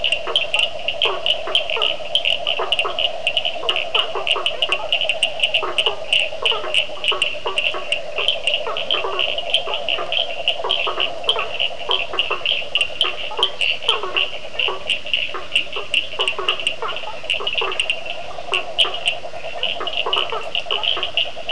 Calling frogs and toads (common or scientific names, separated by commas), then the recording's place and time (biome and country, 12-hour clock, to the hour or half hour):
blacksmith tree frog, yellow cururu toad, Cochran's lime tree frog, Leptodactylus latrans
Atlantic Forest, Brazil, ~8pm